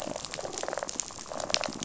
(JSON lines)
{"label": "biophony, rattle response", "recorder": "SoundTrap 500"}